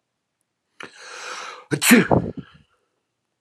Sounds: Sneeze